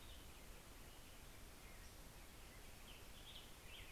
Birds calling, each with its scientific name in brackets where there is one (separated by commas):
American Robin (Turdus migratorius)